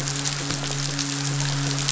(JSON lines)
{"label": "biophony, midshipman", "recorder": "SoundTrap 500"}